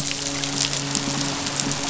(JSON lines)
{"label": "biophony, midshipman", "recorder": "SoundTrap 500"}
{"label": "biophony", "recorder": "SoundTrap 500"}